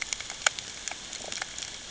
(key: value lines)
label: ambient
recorder: HydroMoth